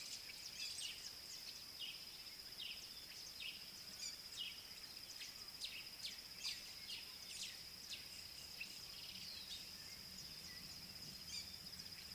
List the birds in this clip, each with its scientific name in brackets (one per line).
Parrot-billed Sparrow (Passer gongonensis)